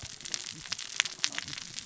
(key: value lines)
label: biophony, cascading saw
recorder: SoundTrap 600 or HydroMoth